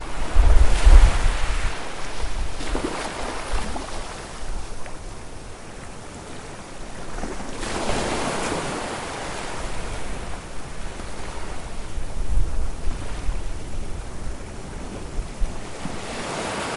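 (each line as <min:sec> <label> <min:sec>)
0:00.0 Multiple small waves hit the beach. 0:05.1
0:06.9 Wave crashing loudly on the beach. 0:10.3
0:10.3 Waves crashing in the distance. 0:15.8
0:15.8 A wave crashes onto the beach and approaches closer. 0:16.8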